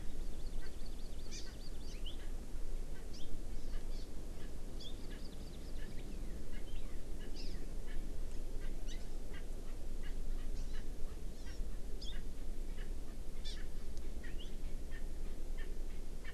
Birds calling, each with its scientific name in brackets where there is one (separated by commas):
Hawaii Amakihi (Chlorodrepanis virens), Erckel's Francolin (Pternistis erckelii)